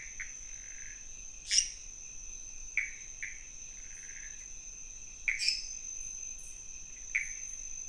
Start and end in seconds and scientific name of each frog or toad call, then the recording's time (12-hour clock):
0.0	7.8	Pithecopus azureus
1.3	2.0	Dendropsophus minutus
5.3	5.9	Dendropsophus minutus
1:30am